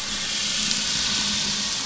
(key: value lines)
label: anthrophony, boat engine
recorder: SoundTrap 500